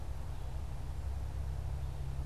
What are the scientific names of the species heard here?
Poecile atricapillus